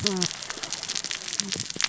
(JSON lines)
{"label": "biophony, cascading saw", "recorder": "SoundTrap 600 or HydroMoth"}